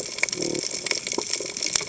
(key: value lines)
label: biophony
recorder: HydroMoth